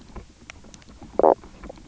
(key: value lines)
label: biophony, knock croak
recorder: SoundTrap 300